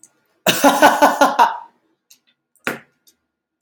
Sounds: Laughter